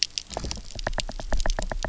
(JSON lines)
{"label": "biophony, knock", "recorder": "SoundTrap 300"}